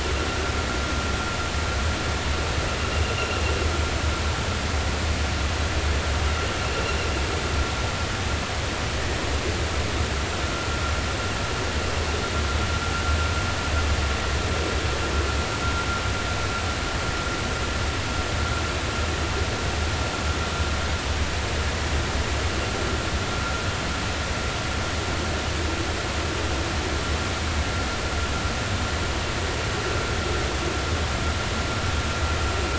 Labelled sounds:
10.4	10.7	vessel noise, 1.2 to 1.4 kHz

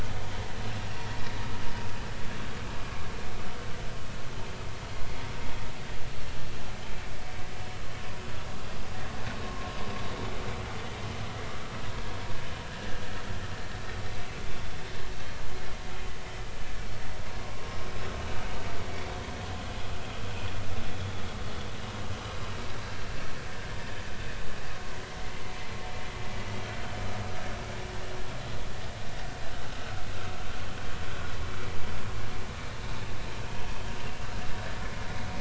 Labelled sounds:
9.4	9.7	vessel noise, 0.99 to 1.1 kHz

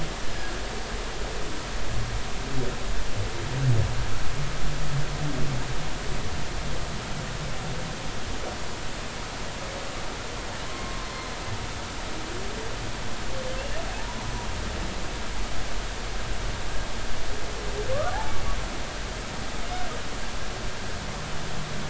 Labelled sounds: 10.7	11.1	humpback whale, 0.99 to 1.1 kHz
13.9	14.3	humpback whale, 0.80 to 1.1 kHz
17.9	18.3	humpback whale, 0.80 to 1.5 kHz

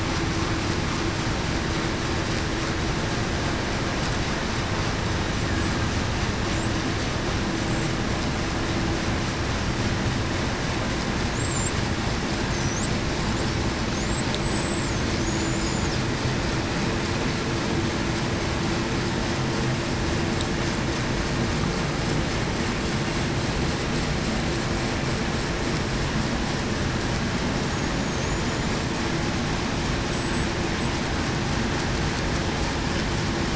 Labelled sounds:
14.4	14.9	killer whale, Bigg's (transient), 7.6 to 8.0 kHz
30.1	30.5	killer whale, Bigg's (transient), 7.7 to 7.9 kHz

